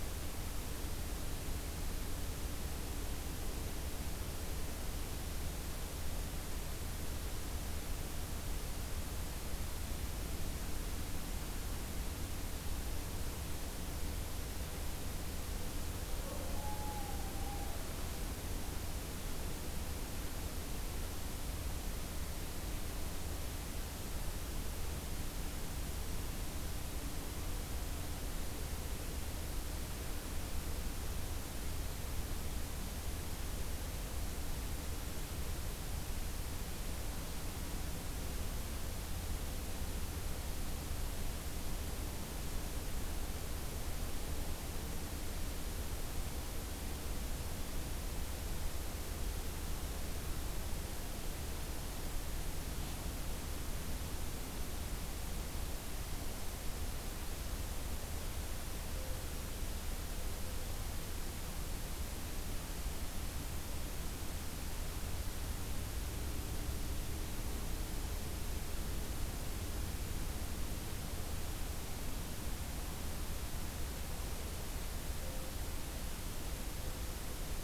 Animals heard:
forest ambience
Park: Acadia National Park